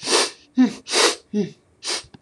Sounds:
Sniff